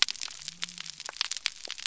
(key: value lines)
label: biophony
recorder: SoundTrap 300